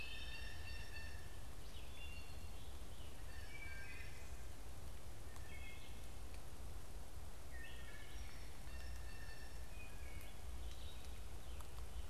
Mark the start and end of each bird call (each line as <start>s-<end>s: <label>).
0.0s-0.6s: Wood Thrush (Hylocichla mustelina)
0.0s-1.4s: Blue Jay (Cyanocitta cristata)
0.0s-4.4s: Red-eyed Vireo (Vireo olivaceus)
1.7s-2.6s: Wood Thrush (Hylocichla mustelina)
3.1s-4.2s: Wood Thrush (Hylocichla mustelina)
5.0s-6.0s: Wood Thrush (Hylocichla mustelina)
7.1s-8.1s: Wood Thrush (Hylocichla mustelina)
7.8s-9.7s: Blue Jay (Cyanocitta cristata)
10.0s-11.2s: Red-eyed Vireo (Vireo olivaceus)